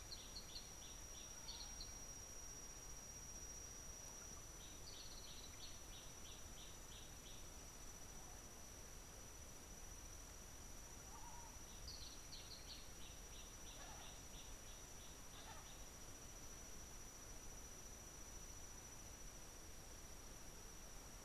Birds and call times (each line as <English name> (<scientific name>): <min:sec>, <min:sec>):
Gray Apalis (Apalis cinerea): 0:05.3, 0:12.4